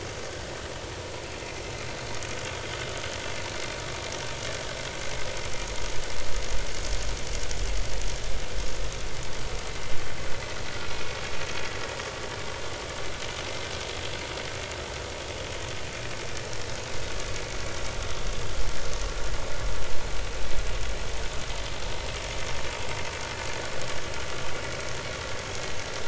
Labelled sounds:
10.9	11.2	vessel noise, 2.4 to 2.5 kHz

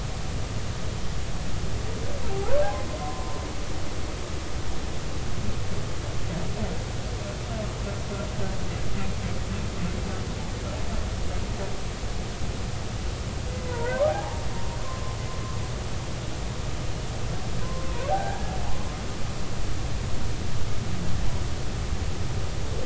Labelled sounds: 3.0	3.4	humpback whale, 0.90 to 1.1 kHz
13.6	14.4	humpback whale, 0.80 to 1.6 kHz
15.3	15.6	humpback whale, 1.0 to 1.1 kHz
17.6	18.4	humpback whale, 0.80 to 1.7 kHz

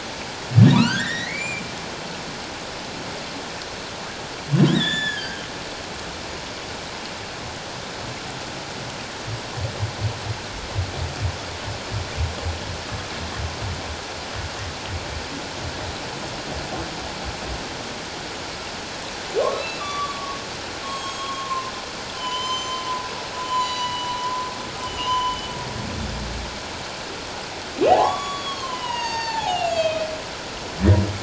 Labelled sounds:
0.7	1.6	humpback whale, 1.1 to 7.3 kHz
4.7	5.4	humpback whale, 1.5 to 7.1 kHz
19.5	20.4	humpback whale, 1.1 to 4.0 kHz
20.8	21.7	humpback whale, 0.97 to 7.7 kHz
22.1	22.8	humpback whale, 0.94 to 7.2 kHz
23.4	25.5	humpback whale, 0.97 to 7.1 kHz
27.9	30.1	humpback whale, 0.78 to 7.1 kHz

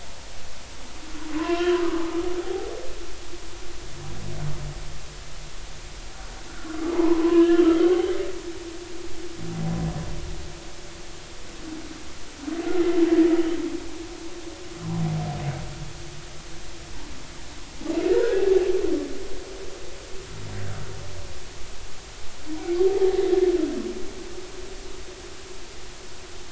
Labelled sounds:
1.4	2.7	humpback whale, 0.80 to 1.3 kHz
6.9	7.7	humpback whale, 0.83 to 3.2 kHz
18.1	18.4	humpback whale, 1.3 to 1.7 kHz
22.9	23.2	humpback whale, 0.80 to 0.93 kHz

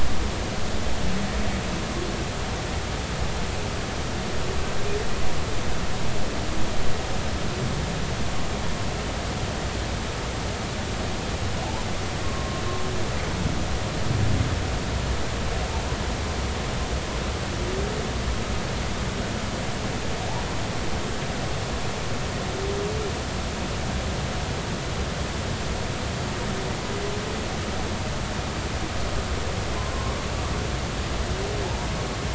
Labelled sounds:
12.2	12.6	humpback whale, 0.99 to 1.2 kHz
29.9	30.2	humpback whale, 0.99 to 1.2 kHz

